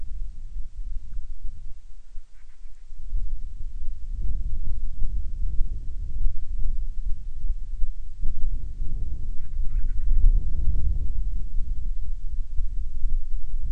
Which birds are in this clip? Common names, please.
Band-rumped Storm-Petrel